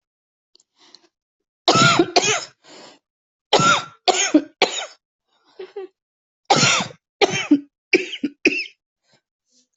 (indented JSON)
{
  "expert_labels": [
    {
      "quality": "ok",
      "cough_type": "dry",
      "dyspnea": false,
      "wheezing": true,
      "stridor": false,
      "choking": false,
      "congestion": false,
      "nothing": false,
      "diagnosis": "COVID-19",
      "severity": "mild"
    }
  ],
  "age": 42,
  "gender": "female",
  "respiratory_condition": true,
  "fever_muscle_pain": false,
  "status": "COVID-19"
}